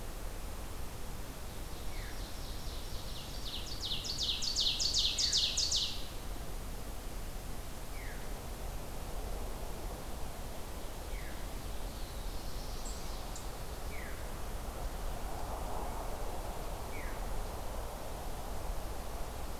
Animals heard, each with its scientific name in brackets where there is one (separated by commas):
Black-throated Blue Warbler (Setophaga caerulescens), Ovenbird (Seiurus aurocapilla), Veery (Catharus fuscescens)